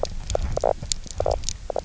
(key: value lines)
label: biophony, knock croak
recorder: SoundTrap 300